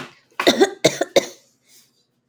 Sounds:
Cough